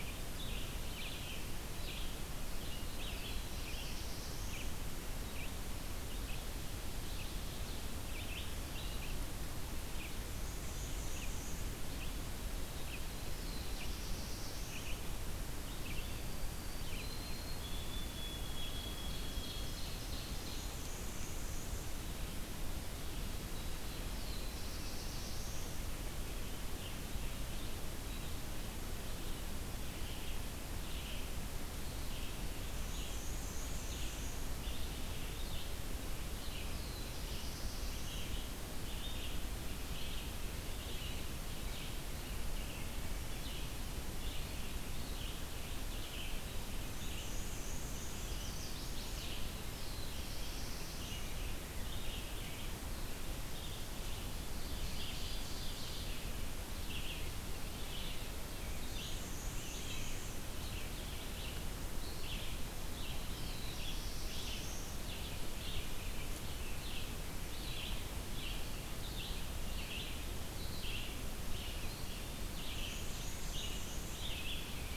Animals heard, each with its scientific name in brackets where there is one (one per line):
Black-and-white Warbler (Mniotilta varia)
Ovenbird (Seiurus aurocapilla)
Chestnut-sided Warbler (Setophaga pensylvanica)
White-throated Sparrow (Zonotrichia albicollis)
Black-throated Blue Warbler (Setophaga caerulescens)
Red-eyed Vireo (Vireo olivaceus)